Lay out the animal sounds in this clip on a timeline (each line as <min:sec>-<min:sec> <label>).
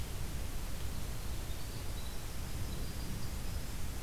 0:00.7-0:04.0 Winter Wren (Troglodytes hiemalis)